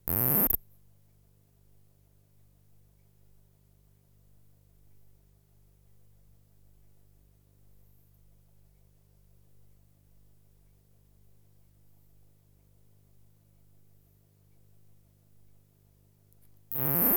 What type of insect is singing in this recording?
orthopteran